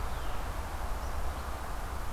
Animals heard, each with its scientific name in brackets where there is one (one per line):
Red-eyed Vireo (Vireo olivaceus)